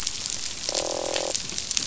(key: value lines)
label: biophony, croak
recorder: SoundTrap 500